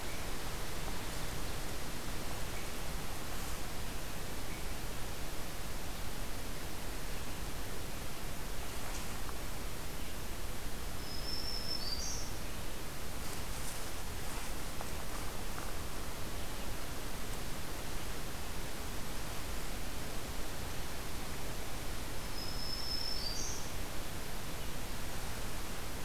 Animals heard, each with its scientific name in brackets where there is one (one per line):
Black-throated Green Warbler (Setophaga virens)